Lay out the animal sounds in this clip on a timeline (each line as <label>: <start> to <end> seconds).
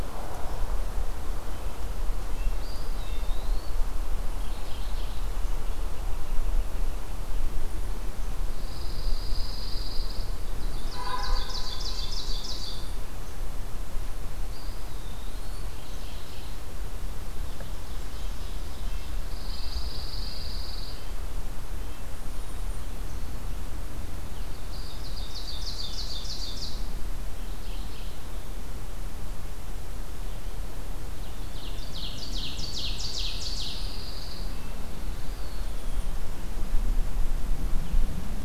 Eastern Wood-Pewee (Contopus virens): 2.5 to 3.8 seconds
Mourning Warbler (Geothlypis philadelphia): 4.3 to 5.2 seconds
American Robin (Turdus migratorius): 5.6 to 7.3 seconds
Pine Warbler (Setophaga pinus): 8.5 to 10.4 seconds
Ovenbird (Seiurus aurocapilla): 10.5 to 12.9 seconds
Eastern Wood-Pewee (Contopus virens): 14.4 to 15.8 seconds
Mourning Warbler (Geothlypis philadelphia): 15.6 to 16.6 seconds
Red-breasted Nuthatch (Sitta canadensis): 18.0 to 22.1 seconds
Pine Warbler (Setophaga pinus): 19.2 to 21.2 seconds
Golden-crowned Kinglet (Regulus satrapa): 22.0 to 23.0 seconds
Ovenbird (Seiurus aurocapilla): 24.4 to 26.9 seconds
Mourning Warbler (Geothlypis philadelphia): 27.3 to 28.3 seconds
Ovenbird (Seiurus aurocapilla): 30.9 to 33.7 seconds
Pine Warbler (Setophaga pinus): 33.1 to 34.5 seconds
Eastern Wood-Pewee (Contopus virens): 35.1 to 36.1 seconds
Golden-crowned Kinglet (Regulus satrapa): 35.4 to 36.3 seconds